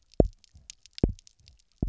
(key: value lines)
label: biophony, double pulse
recorder: SoundTrap 300